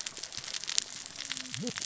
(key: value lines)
label: biophony, cascading saw
recorder: SoundTrap 600 or HydroMoth